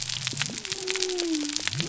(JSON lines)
{"label": "biophony", "recorder": "SoundTrap 300"}